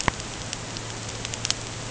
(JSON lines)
{"label": "ambient", "recorder": "HydroMoth"}